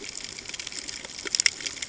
{"label": "ambient", "recorder": "HydroMoth"}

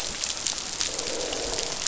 {"label": "biophony, croak", "recorder": "SoundTrap 500"}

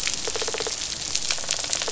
{"label": "biophony, rattle response", "recorder": "SoundTrap 500"}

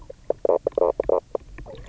{"label": "biophony, knock croak", "recorder": "SoundTrap 300"}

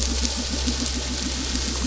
{"label": "anthrophony, boat engine", "recorder": "SoundTrap 500"}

